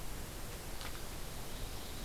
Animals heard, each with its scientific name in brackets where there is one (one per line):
Ovenbird (Seiurus aurocapilla)